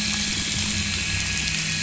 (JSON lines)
{"label": "anthrophony, boat engine", "recorder": "SoundTrap 500"}